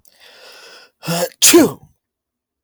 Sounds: Sneeze